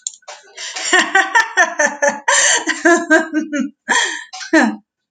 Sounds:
Laughter